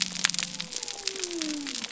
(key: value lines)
label: biophony
recorder: SoundTrap 300